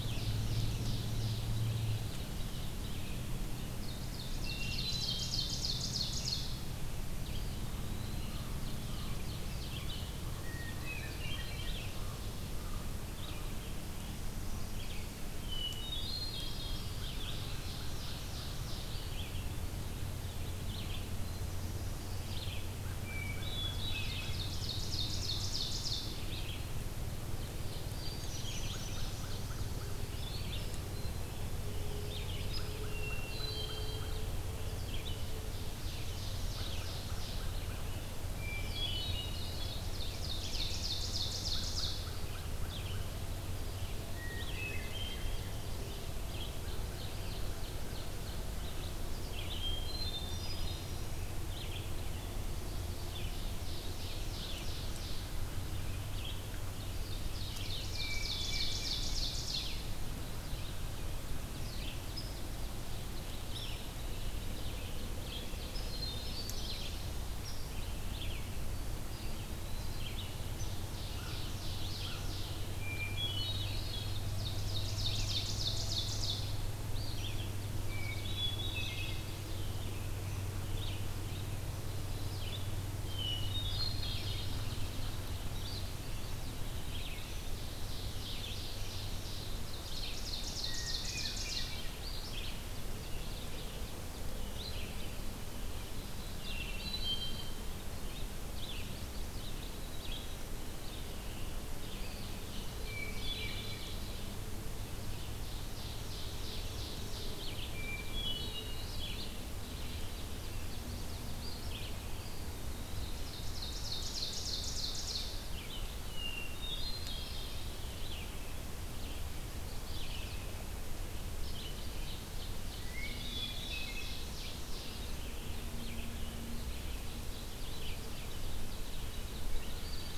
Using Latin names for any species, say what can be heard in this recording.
Seiurus aurocapilla, Vireo olivaceus, Catharus guttatus, Contopus virens, Corvus brachyrhynchos, Corvus corax, Dryobates villosus, Setophaga pensylvanica